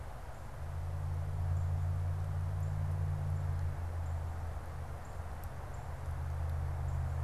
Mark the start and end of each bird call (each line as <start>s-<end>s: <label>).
0.0s-7.2s: Northern Cardinal (Cardinalis cardinalis)